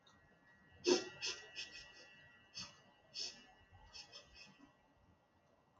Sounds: Sniff